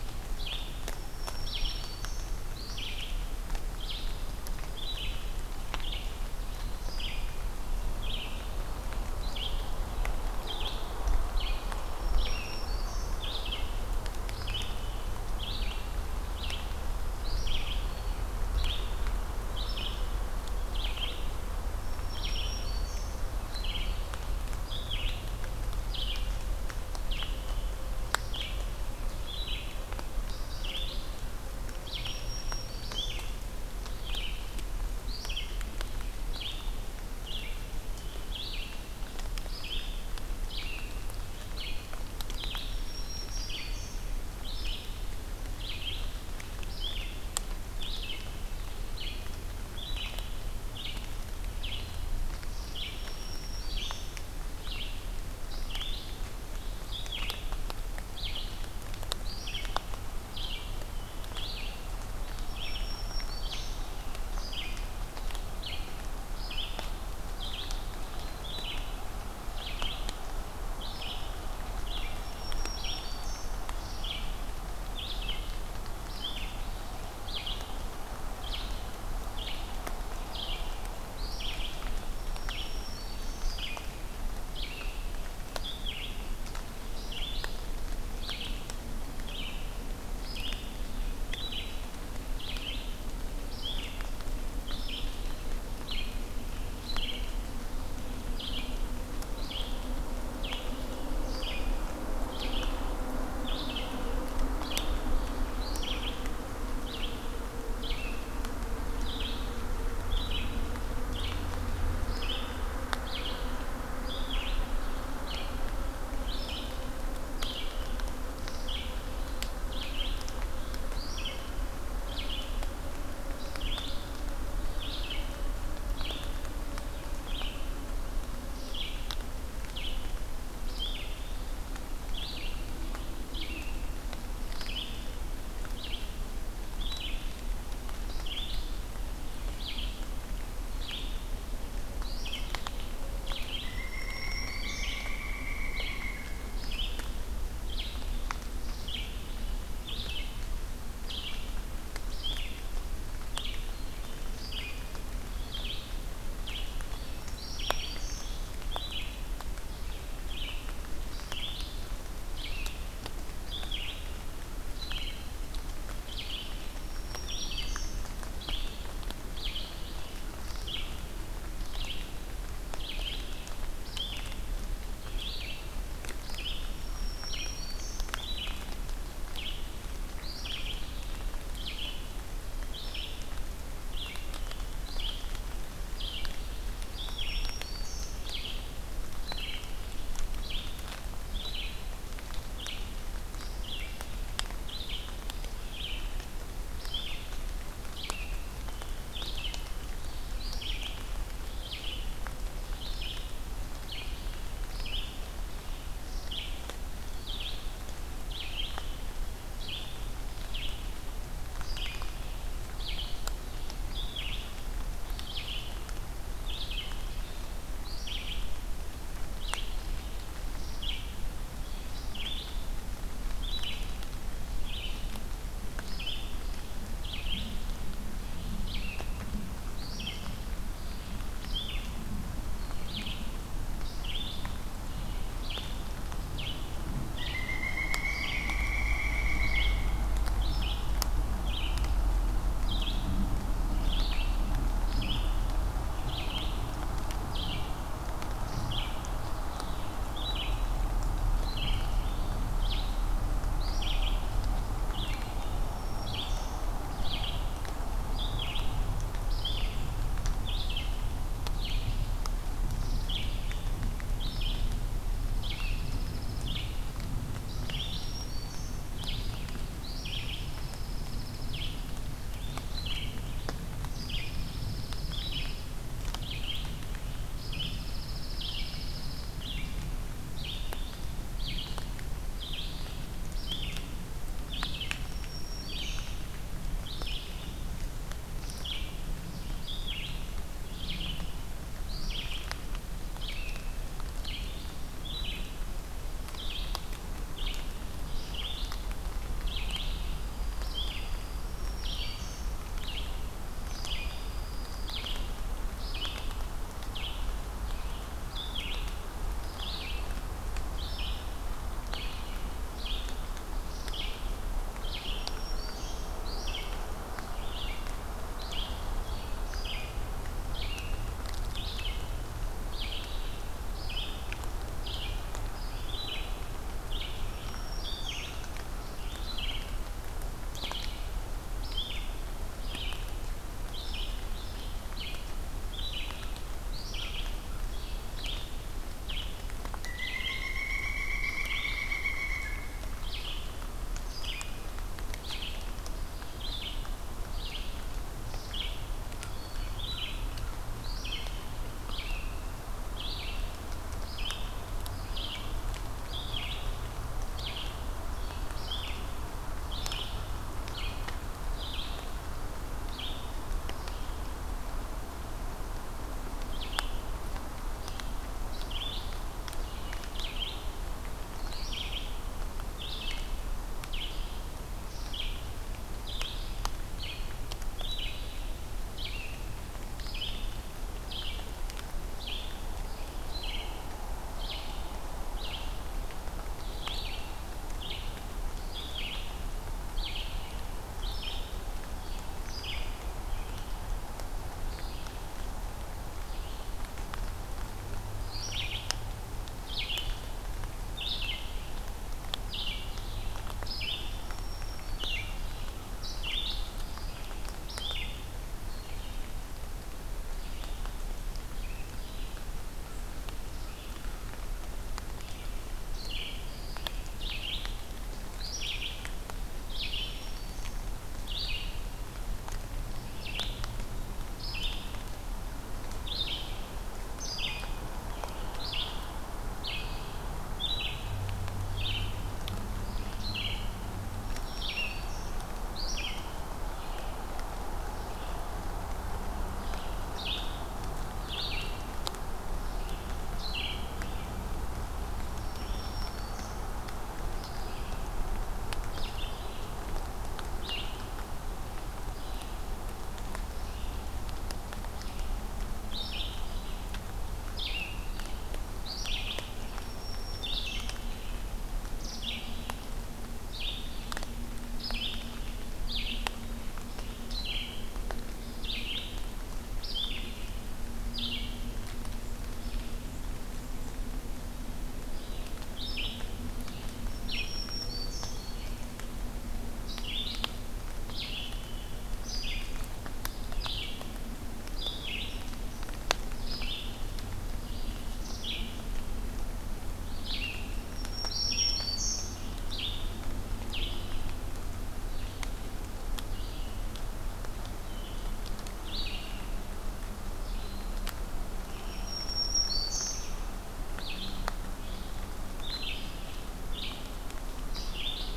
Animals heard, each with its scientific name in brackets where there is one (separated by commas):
unidentified call, Pileated Woodpecker (Dryocopus pileatus), Red-eyed Vireo (Vireo olivaceus), Pine Warbler (Setophaga pinus), American Crow (Corvus brachyrhynchos), Black-throated Green Warbler (Setophaga virens)